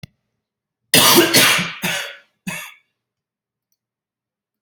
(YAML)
expert_labels:
- quality: good
  cough_type: dry
  dyspnea: false
  wheezing: false
  stridor: false
  choking: false
  congestion: false
  nothing: true
  diagnosis: COVID-19
  severity: mild
age: 38
gender: male
respiratory_condition: false
fever_muscle_pain: true
status: symptomatic